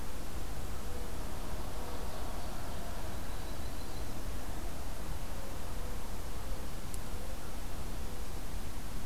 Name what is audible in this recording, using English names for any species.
Golden-crowned Kinglet, Ovenbird, Yellow-rumped Warbler